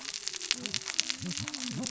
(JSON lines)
{"label": "biophony, cascading saw", "recorder": "SoundTrap 600 or HydroMoth"}